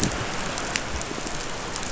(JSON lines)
{"label": "biophony", "recorder": "SoundTrap 500"}
{"label": "anthrophony, boat engine", "recorder": "SoundTrap 500"}